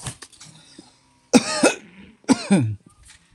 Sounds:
Throat clearing